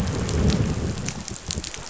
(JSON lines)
{"label": "biophony, growl", "recorder": "SoundTrap 500"}